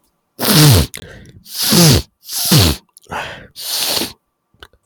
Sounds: Sniff